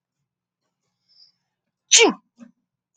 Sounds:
Sneeze